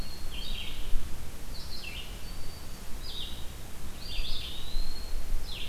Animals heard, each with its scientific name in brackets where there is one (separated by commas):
Black-throated Green Warbler (Setophaga virens), Eastern Wood-Pewee (Contopus virens), Red-eyed Vireo (Vireo olivaceus)